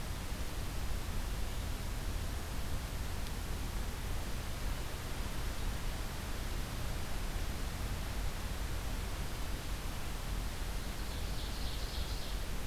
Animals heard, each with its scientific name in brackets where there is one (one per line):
Ovenbird (Seiurus aurocapilla)